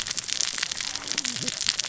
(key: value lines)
label: biophony, cascading saw
recorder: SoundTrap 600 or HydroMoth